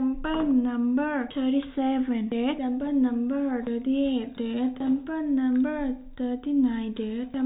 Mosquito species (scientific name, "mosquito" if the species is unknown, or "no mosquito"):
mosquito